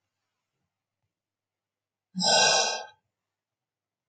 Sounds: Sigh